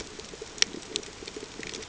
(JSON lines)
{"label": "ambient", "recorder": "HydroMoth"}